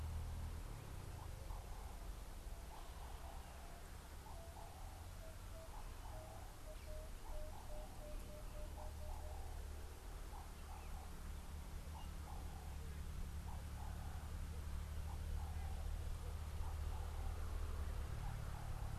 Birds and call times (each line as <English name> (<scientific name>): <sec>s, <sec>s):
Ring-necked Dove (Streptopelia capicola): 4.7s
Emerald-spotted Wood-Dove (Turtur chalcospilos): 7.0s